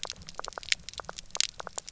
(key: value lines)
label: biophony, knock croak
recorder: SoundTrap 300